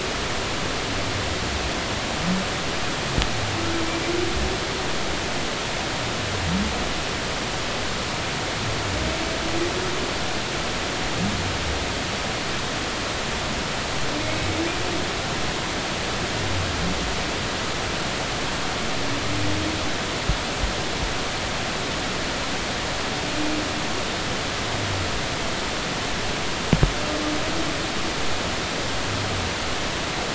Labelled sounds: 14.2	14.5	humpback whale, 2.1 to 2.3 kHz

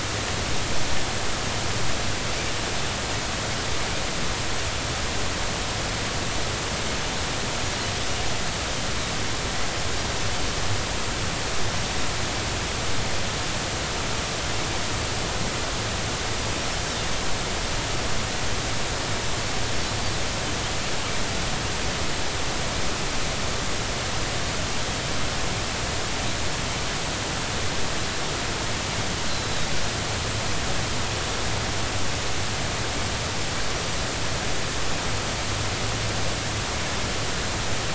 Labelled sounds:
29.3	29.7	Pacific white-sided dolphin, 3.7 to 4.1 kHz

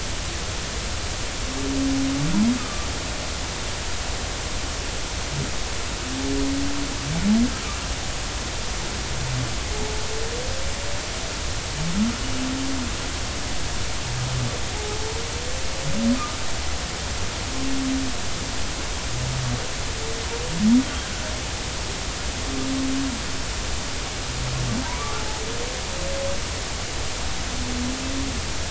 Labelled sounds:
2.6	2.9	humpback whale, 1.2 to 1.3 kHz

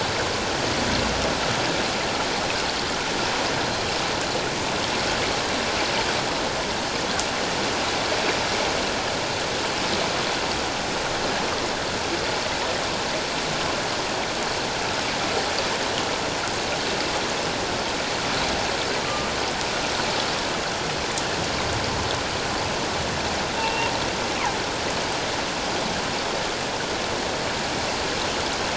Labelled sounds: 19.0	19.3	killer whale, 1.1 to 1.2 kHz
23.6	23.9	killer whale, northern resident, G clan, 2.6 to 2.9 kHz

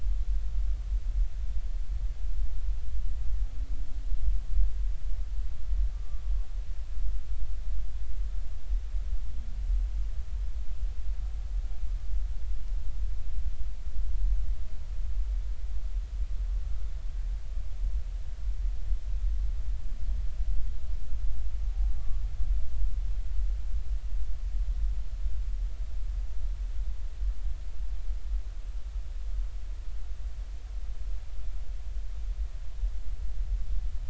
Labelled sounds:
5.9	6.2	humpback whale, 1.1 to 1.2 kHz
22.0	22.2	humpback whale, 1.1 to 1.2 kHz

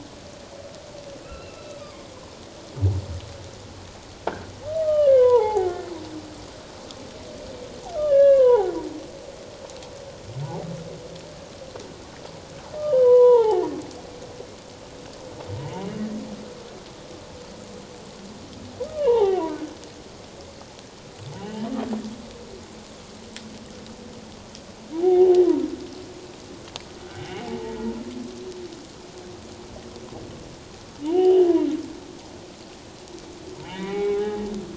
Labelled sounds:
1.2	2.1	humpback whale, 1.0 to 4.0 kHz
4.3	4.5	croaking sound likely from a nearby submerged object, 1.4 to 1.7 kHz
4.8	5.9	humpback whale, 0.78 to 3.1 kHz
8.0	8.7	humpback whale, 0.78 to 3.1 kHz
12.9	13.6	humpback whale, 0.78 to 3.3 kHz
18.8	19.7	humpback whale, 0.78 to 3.1 kHz
21.4	21.7	humpback whale, 0.78 to 3.2 kHz
25.0	25.3	humpback whale, 0.78 to 0.84 kHz
27.2	27.8	humpback whale, 0.78 to 2.3 kHz
31.0	31.5	humpback whale, 0.78 to 3.2 kHz
33.6	34.4	humpback whale, 0.78 to 3.8 kHz

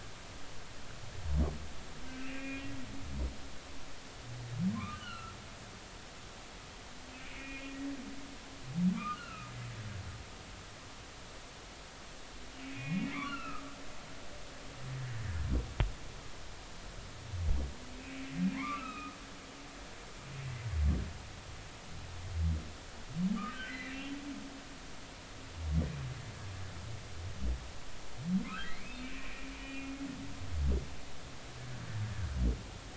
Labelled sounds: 2.2	2.6	humpback whale, 2.1 to 2.8 kHz
4.7	5.4	humpback whale, 0.99 to 3.1 kHz
7.2	7.8	humpback whale, 2.1 to 2.6 kHz
8.9	9.5	humpback whale, 1.1 to 2.9 kHz
12.6	13.6	humpback whale, 1.2 to 2.9 kHz
18.6	19.2	humpback whale, 0.96 to 2.8 kHz
23.4	24.1	humpback whale, 1.1 to 3.2 kHz
28.5	29.9	humpback whale, 1.2 to 2.8 kHz

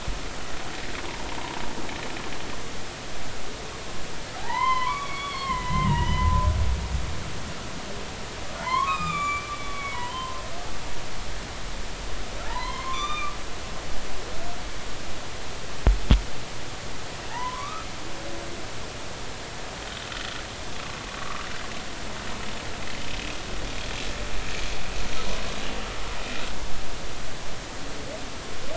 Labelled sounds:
4.4	6.5	humpback whale, 0.80 to 3.5 kHz
8.6	10.4	humpback whale, 0.83 to 7.6 kHz
12.4	13.4	humpback whale, 0.83 to 3.7 kHz
17.3	17.9	humpback whale, 0.83 to 1.4 kHz
21.2	21.4	humpback whale, 1.1 to 1.3 kHz

